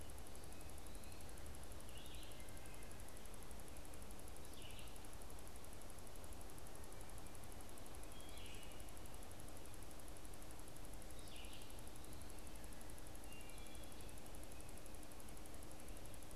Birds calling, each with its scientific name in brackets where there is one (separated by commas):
Red-eyed Vireo (Vireo olivaceus), Wood Thrush (Hylocichla mustelina)